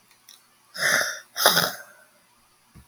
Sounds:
Sigh